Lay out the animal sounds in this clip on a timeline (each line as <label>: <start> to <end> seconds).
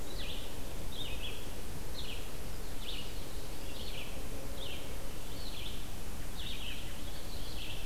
Red-eyed Vireo (Vireo olivaceus): 0.0 to 7.9 seconds
American Robin (Turdus migratorius): 6.1 to 7.0 seconds